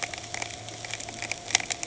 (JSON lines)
{"label": "anthrophony, boat engine", "recorder": "HydroMoth"}